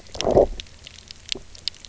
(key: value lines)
label: biophony
recorder: SoundTrap 300